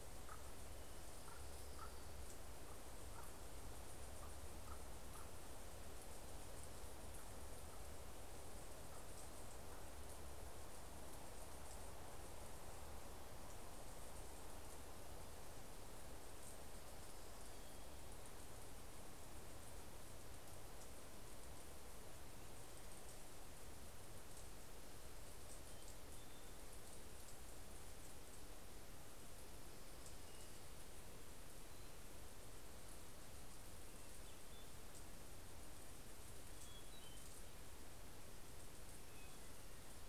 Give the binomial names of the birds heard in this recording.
Corvus corax, Leiothlypis celata, Catharus guttatus